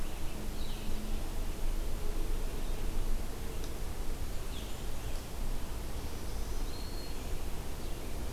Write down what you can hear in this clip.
Red-eyed Vireo, Black-throated Green Warbler